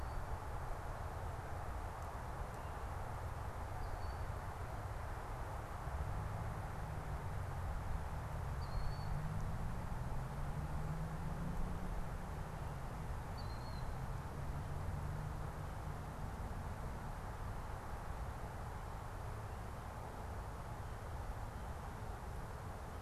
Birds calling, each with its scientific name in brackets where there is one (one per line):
Killdeer (Charadrius vociferus)